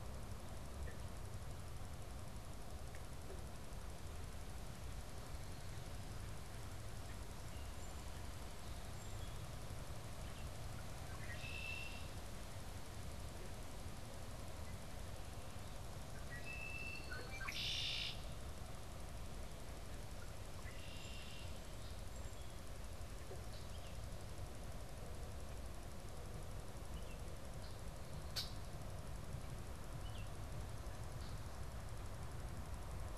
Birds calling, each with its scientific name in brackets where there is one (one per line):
Red-winged Blackbird (Agelaius phoeniceus)
Baltimore Oriole (Icterus galbula)